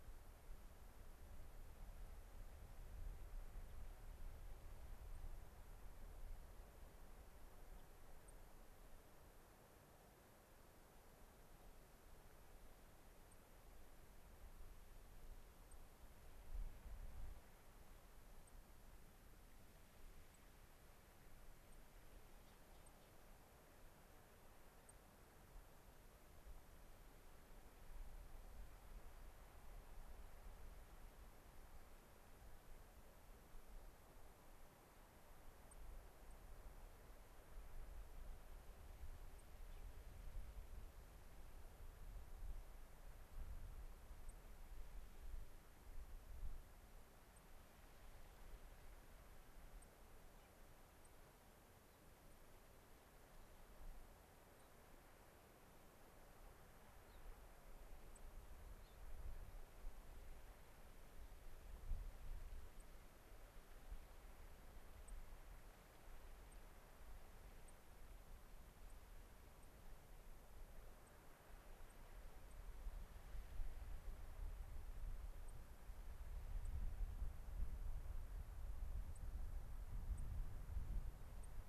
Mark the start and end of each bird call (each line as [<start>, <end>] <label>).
[7.74, 7.84] unidentified bird
[8.24, 8.34] White-crowned Sparrow (Zonotrichia leucophrys)
[13.24, 13.44] White-crowned Sparrow (Zonotrichia leucophrys)
[15.64, 15.74] White-crowned Sparrow (Zonotrichia leucophrys)
[18.44, 18.54] White-crowned Sparrow (Zonotrichia leucophrys)
[20.24, 20.44] White-crowned Sparrow (Zonotrichia leucophrys)
[21.64, 21.84] White-crowned Sparrow (Zonotrichia leucophrys)
[22.74, 22.94] White-crowned Sparrow (Zonotrichia leucophrys)
[24.84, 24.94] White-crowned Sparrow (Zonotrichia leucophrys)
[35.64, 35.74] White-crowned Sparrow (Zonotrichia leucophrys)
[36.24, 36.34] White-crowned Sparrow (Zonotrichia leucophrys)
[39.34, 39.44] White-crowned Sparrow (Zonotrichia leucophrys)
[39.64, 39.84] Gray-crowned Rosy-Finch (Leucosticte tephrocotis)
[44.24, 44.34] White-crowned Sparrow (Zonotrichia leucophrys)
[47.34, 47.44] White-crowned Sparrow (Zonotrichia leucophrys)
[49.74, 49.94] White-crowned Sparrow (Zonotrichia leucophrys)
[50.34, 50.54] Gray-crowned Rosy-Finch (Leucosticte tephrocotis)
[50.94, 51.14] White-crowned Sparrow (Zonotrichia leucophrys)
[52.24, 52.34] White-crowned Sparrow (Zonotrichia leucophrys)
[54.54, 54.64] White-crowned Sparrow (Zonotrichia leucophrys)
[57.04, 57.24] Gray-crowned Rosy-Finch (Leucosticte tephrocotis)
[58.14, 58.24] White-crowned Sparrow (Zonotrichia leucophrys)
[58.84, 58.94] Gray-crowned Rosy-Finch (Leucosticte tephrocotis)
[62.74, 62.84] White-crowned Sparrow (Zonotrichia leucophrys)
[65.04, 65.14] White-crowned Sparrow (Zonotrichia leucophrys)
[66.44, 66.54] White-crowned Sparrow (Zonotrichia leucophrys)
[67.64, 67.74] White-crowned Sparrow (Zonotrichia leucophrys)
[68.84, 68.94] White-crowned Sparrow (Zonotrichia leucophrys)
[71.04, 71.14] White-crowned Sparrow (Zonotrichia leucophrys)
[71.84, 71.94] White-crowned Sparrow (Zonotrichia leucophrys)
[72.44, 72.54] White-crowned Sparrow (Zonotrichia leucophrys)
[75.44, 75.54] White-crowned Sparrow (Zonotrichia leucophrys)
[76.64, 76.74] White-crowned Sparrow (Zonotrichia leucophrys)
[79.14, 79.24] White-crowned Sparrow (Zonotrichia leucophrys)
[80.14, 80.24] White-crowned Sparrow (Zonotrichia leucophrys)
[81.34, 81.54] White-crowned Sparrow (Zonotrichia leucophrys)